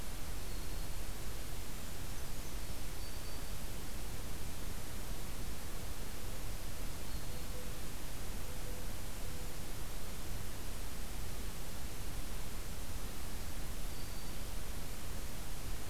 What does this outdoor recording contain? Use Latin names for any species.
Certhia americana, Setophaga virens, Zenaida macroura